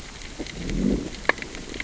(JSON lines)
{"label": "biophony, growl", "recorder": "SoundTrap 600 or HydroMoth"}